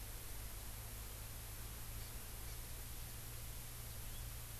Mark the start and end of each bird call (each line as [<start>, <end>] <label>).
[1.92, 2.12] Hawaii Amakihi (Chlorodrepanis virens)
[2.42, 2.62] Hawaii Amakihi (Chlorodrepanis virens)